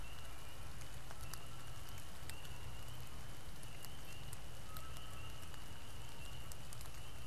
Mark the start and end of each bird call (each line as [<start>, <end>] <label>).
[0.00, 5.74] Canada Goose (Branta canadensis)